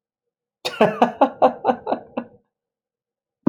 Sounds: Laughter